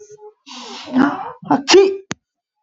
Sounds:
Sneeze